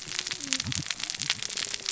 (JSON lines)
{"label": "biophony, cascading saw", "recorder": "SoundTrap 600 or HydroMoth"}